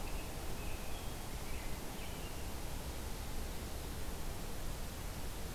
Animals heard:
American Robin (Turdus migratorius)

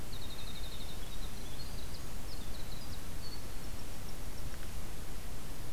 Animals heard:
Golden-crowned Kinglet (Regulus satrapa), Winter Wren (Troglodytes hiemalis)

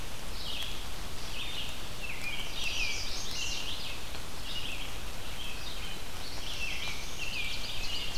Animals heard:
Ovenbird (Seiurus aurocapilla), Black-throated Blue Warbler (Setophaga caerulescens), Red-eyed Vireo (Vireo olivaceus), American Robin (Turdus migratorius), Chestnut-sided Warbler (Setophaga pensylvanica)

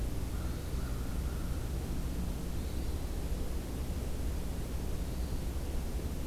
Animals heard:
American Crow (Corvus brachyrhynchos), Hermit Thrush (Catharus guttatus)

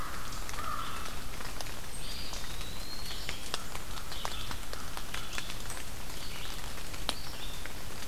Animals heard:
American Crow (Corvus brachyrhynchos), Red-eyed Vireo (Vireo olivaceus), Eastern Wood-Pewee (Contopus virens)

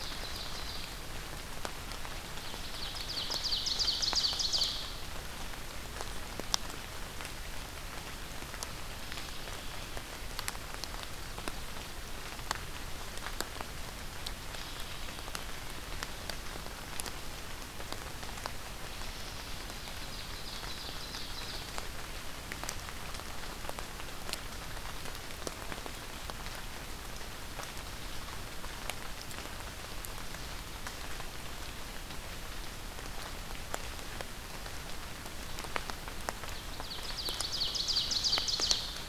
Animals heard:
American Robin (Turdus migratorius), Ovenbird (Seiurus aurocapilla)

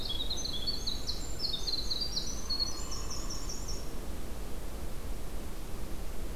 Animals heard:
Winter Wren (Troglodytes hiemalis), Hairy Woodpecker (Dryobates villosus)

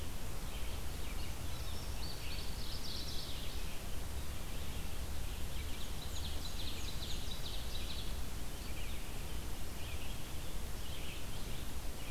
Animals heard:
Ovenbird (Seiurus aurocapilla), Mourning Warbler (Geothlypis philadelphia), Black-and-white Warbler (Mniotilta varia), Red-eyed Vireo (Vireo olivaceus), Indigo Bunting (Passerina cyanea)

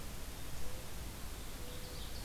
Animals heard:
Ovenbird (Seiurus aurocapilla), Mourning Dove (Zenaida macroura)

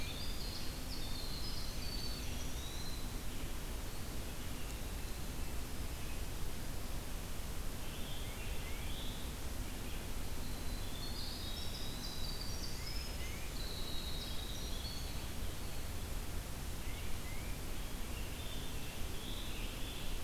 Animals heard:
Tufted Titmouse (Baeolophus bicolor), Winter Wren (Troglodytes hiemalis), Scarlet Tanager (Piranga olivacea), Eastern Wood-Pewee (Contopus virens)

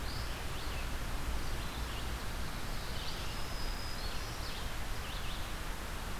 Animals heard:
Red-eyed Vireo (Vireo olivaceus), Black-throated Green Warbler (Setophaga virens)

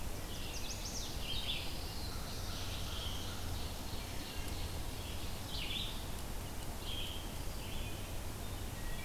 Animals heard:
Pine Warbler (Setophaga pinus), Red-eyed Vireo (Vireo olivaceus), Chestnut-sided Warbler (Setophaga pensylvanica), Black-throated Blue Warbler (Setophaga caerulescens), Ovenbird (Seiurus aurocapilla)

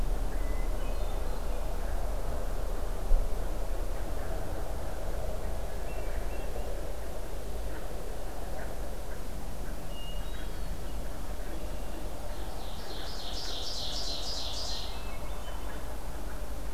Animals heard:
Hermit Thrush (Catharus guttatus), Ovenbird (Seiurus aurocapilla)

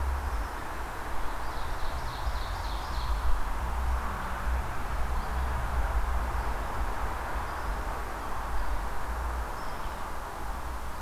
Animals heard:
Ovenbird (Seiurus aurocapilla), Red-eyed Vireo (Vireo olivaceus)

